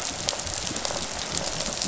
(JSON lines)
{"label": "biophony, rattle response", "recorder": "SoundTrap 500"}